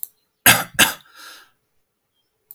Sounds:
Throat clearing